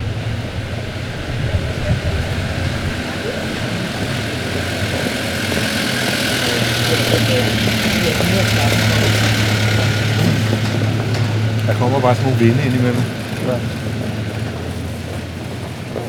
Does the engine's sputtering stop?
yes